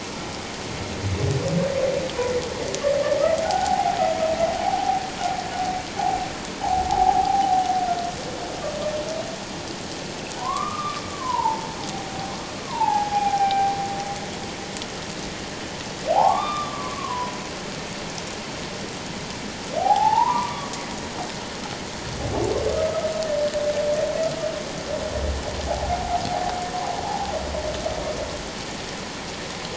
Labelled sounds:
3.4	4.0	humpback whale, 0.78 to 1.6 kHz
4.6	5.0	humpback whale, 0.78 to 0.91 kHz
6.9	7.6	humpback whale, 0.78 to 0.91 kHz
10.4	11.7	humpback whale, 0.81 to 1.3 kHz
12.6	13.7	humpback whale, 0.78 to 2.4 kHz
16.1	17.3	humpback whale, 0.78 to 3.7 kHz
19.8	20.7	humpback whale, 0.78 to 1.3 kHz
22.7	23.1	humpback whale, 1.2 to 1.3 kHz
25.7	26.1	humpback whale, 0.78 to 0.94 kHz
27.0	27.3	humpback whale, 0.78 to 0.94 kHz

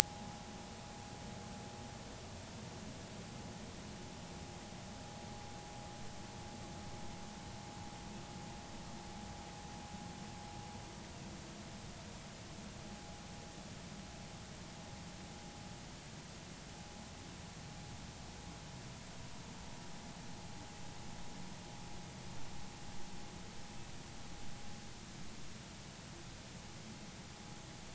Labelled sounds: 1.0	1.4	vessel noise, 0.80 to 0.96 kHz

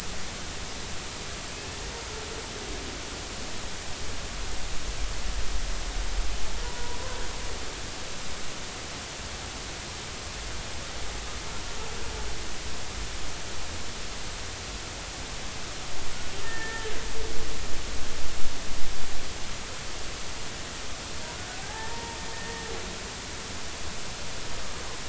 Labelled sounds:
6.6	7.0	humpback whale, 0.93 to 1.0 kHz
16.4	16.9	humpback whale, 1.7 to 1.9 kHz
21.6	22.7	humpback whale, 0.80 to 2.0 kHz

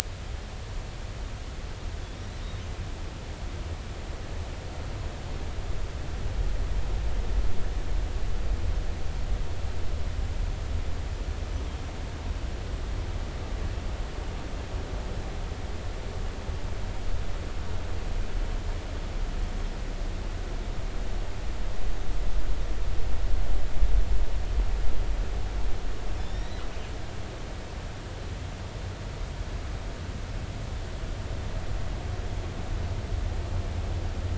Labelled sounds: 26.2	26.6	killer whale, northern resident, G clan, GG subclan, call N28, 1.8 to 6.0 kHz

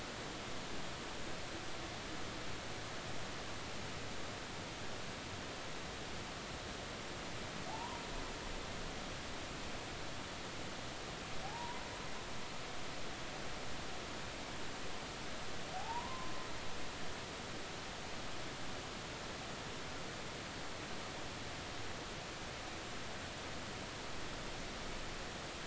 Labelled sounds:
7.7	8.0	humpback whale, 0.80 to 1.1 kHz
11.4	11.8	humpback whale, 0.80 to 1.1 kHz
15.7	16.3	humpback whale, 0.80 to 1.1 kHz

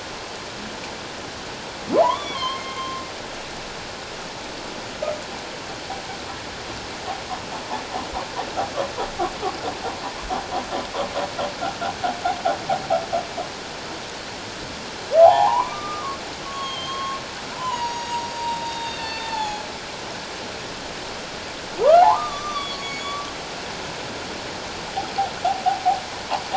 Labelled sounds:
1.9	3.0	humpback whale, 0.78 to 4.3 kHz
15.2	17.2	humpback whale, 0.78 to 6.7 kHz
17.5	19.6	humpback whale, 0.78 to 7.0 kHz
22.0	23.2	humpback whale, 0.78 to 6.9 kHz

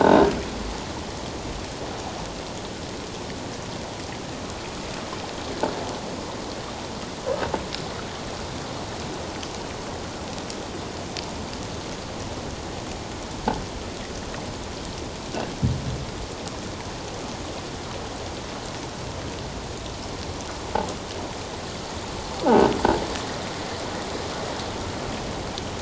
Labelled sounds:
0.0	0.3	croaking sound likely from a nearby submerged object, 1.4 to 1.7 kHz

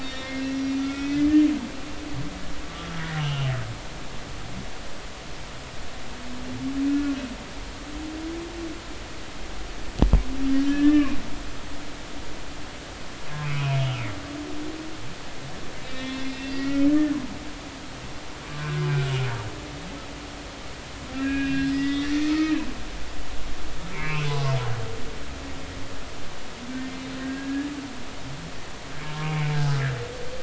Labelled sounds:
0.0	1.3	humpback whale, 1.3 to 3.7 kHz
3.2	3.5	humpback whale, 2.7 to 3.3 kHz
6.9	7.2	humpback whale, 1.4 to 1.5 kHz
10.7	11.2	humpback whale, 0.99 to 3.2 kHz
13.4	14.2	humpback whale, 2.0 to 3.3 kHz
15.8	17.2	humpback whale, 1.7 to 4.2 kHz
18.6	18.9	humpback whale, 1.4 to 1.7 kHz
21.1	22.6	humpback whale, 1.2 to 5.1 kHz
23.9	24.3	humpback whale, 2.0 to 2.8 kHz
27.2	27.7	humpback whale, 1.6 to 1.9 kHz
29.2	29.8	humpback whale, 0.80 to 2.4 kHz

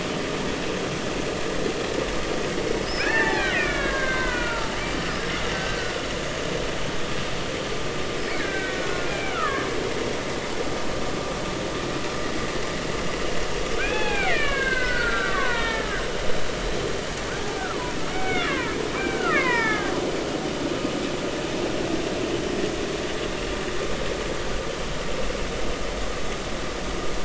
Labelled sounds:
2.8	4.8	killer whale, Bigg's (transient), 0.80 to 5.4 kHz
5.5	6.0	killer whale, Bigg's (transient), 1.4 to 1.6 kHz
8.4	9.7	killer whale, Bigg's (transient), 1.0 to 2.5 kHz
13.8	16.0	killer whale, Bigg's (transient), 0.80 to 3.5 kHz
17.4	18.6	killer whale, Bigg's (transient), 0.80 to 2.9 kHz
19.0	19.9	killer whale, Bigg's (transient), 0.83 to 2.8 kHz

